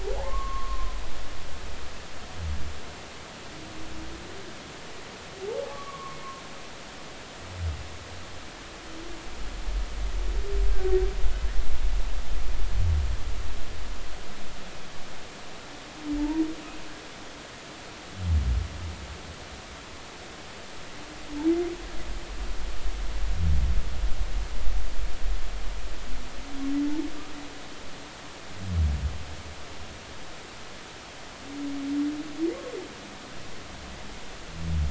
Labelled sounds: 0.2	1.0	humpback whale, 0.80 to 1.2 kHz
5.7	6.2	humpback whale, 0.99 to 1.2 kHz
10.7	10.9	humpback whale, 1.5 to 1.6 kHz
16.2	16.4	humpback whale, 0.83 to 0.99 kHz

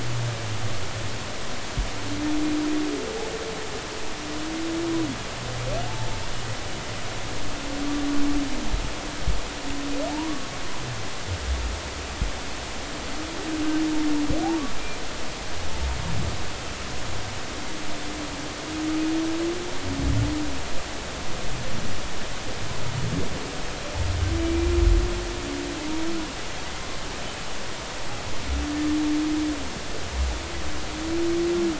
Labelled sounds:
10.1	10.5	humpback whale, 0.80 to 1.2 kHz
24.4	24.8	humpback whale, 2.3 to 2.5 kHz

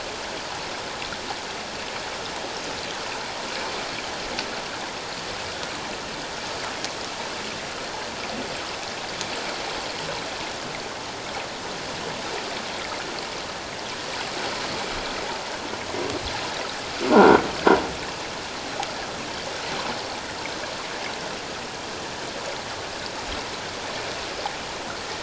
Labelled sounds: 17.1	17.4	water noise, 1.3 to 1.6 kHz

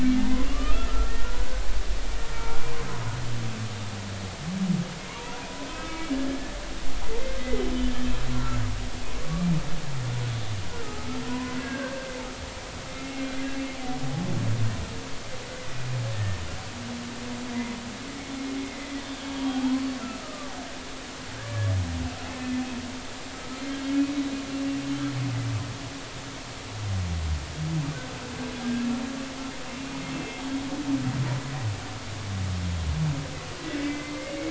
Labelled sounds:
0.2	1.5	humpback whale, 0.80 to 3.2 kHz
2.3	2.7	humpback whale, 1.3 to 2.3 kHz
5.7	6.2	humpback whale, 1.2 to 2.3 kHz
7.2	8.6	humpback whale, 1.3 to 2.0 kHz
9.2	9.5	humpback whale, 1.1 to 1.2 kHz
10.8	12.1	humpback whale, 0.93 to 1.7 kHz
12.9	13.3	humpback whale, 2.0 to 2.2 kHz
16.1	16.4	humpback whale, 1.7 to 1.9 kHz
19.2	19.8	humpback whale, 0.80 to 3.3 kHz
20.2	20.5	humpback whale, 1.1 to 1.3 kHz
21.4	21.7	humpback whale, 1.5 to 1.8 kHz
22.4	22.6	humpback whale, 1.7 to 1.8 kHz
28.6	28.9	humpback whale, 1.6 to 1.7 kHz
30.1	30.4	humpback whale, 2.6 to 2.7 kHz
33.8	34.4	humpback whale, 2.0 to 2.4 kHz

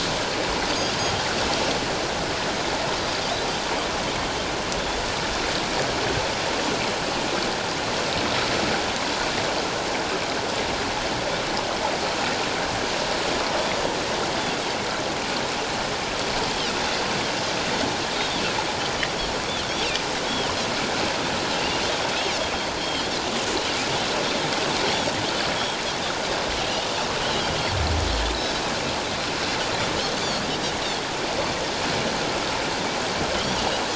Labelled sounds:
21.6	21.8	Pacific white-sided dolphin, 2.7 to 3.0 kHz
22.8	23.1	Pacific white-sided dolphin, 2.9 to 3.3 kHz
30.2	30.4	Pacific white-sided dolphin, 4.3 to 4.8 kHz

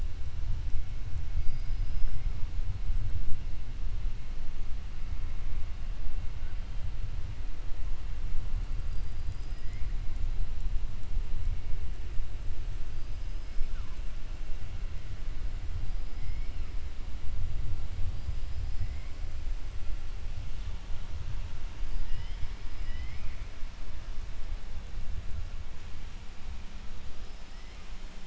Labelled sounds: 1.3	2.2	killer whale, 4.7 to 5.4 kHz
9.5	9.9	killer whale, 1.9 to 2.9 kHz
21.8	23.5	killer whale, 1.2 to 5.5 kHz
27.1	27.8	killer whale, 4.9 to 5.8 kHz

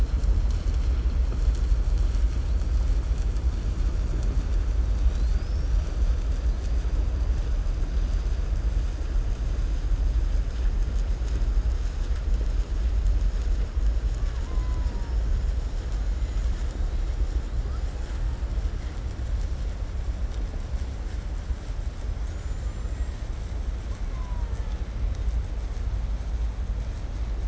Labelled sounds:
14.0	18.4	killer whale, 0.55 to 8.0 kHz
21.9	23.7	killer whale, 0.47 to 8.0 kHz
23.8	25.1	killer whale, Bigg's (transient), 0.59 to 6.6 kHz

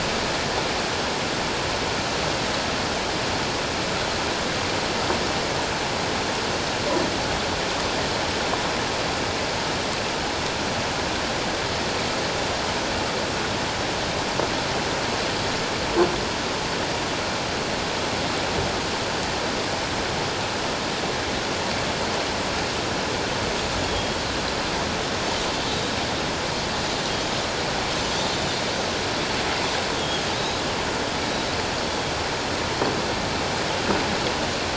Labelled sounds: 23.9	24.2	Pacific white-sided dolphin, 3.2 to 3.4 kHz
30.3	30.6	Pacific white-sided dolphin, 3.5 to 4.0 kHz

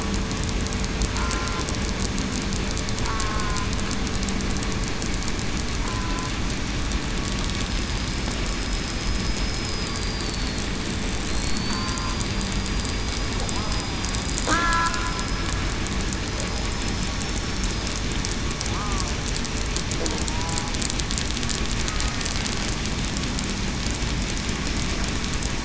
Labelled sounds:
3.2	3.6	killer whale, southern resident, 1.0 to 1.1 kHz
5.8	6.3	killer whale, southern resident, 0.89 to 1.1 kHz
7.6	8.2	killer whale, southern resident, 5.0 to 5.3 kHz
8.5	9.4	killer whale, southern resident, 5.0 to 5.2 kHz
9.9	10.3	killer whale, southern resident, 4.7 to 4.8 kHz
11.3	11.9	killer whale, southern resident, 4.1 to 4.8 kHz
12.9	13.9	killer whale, southern resident, 4.8 to 5.0 kHz
14.5	14.9	killer whale, southern resident, 1.5 to 1.7 kHz
16.6	17.1	killer whale, southern resident, 5.1 to 5.2 kHz

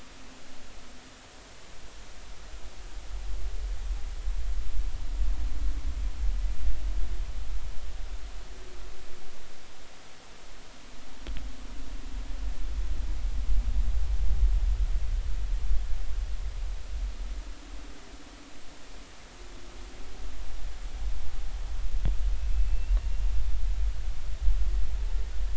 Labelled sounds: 22.4	23.0	humpback whale, 2.5 to 2.8 kHz

